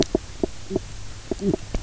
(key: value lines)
label: biophony, knock croak
recorder: SoundTrap 300